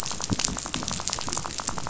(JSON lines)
{"label": "biophony, rattle", "recorder": "SoundTrap 500"}